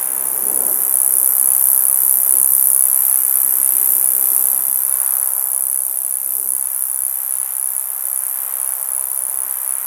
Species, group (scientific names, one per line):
Gampsocleis glabra
Orthoptera